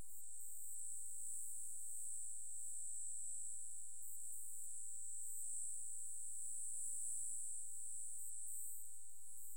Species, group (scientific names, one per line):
Euchorthippus elegantulus
Orthoptera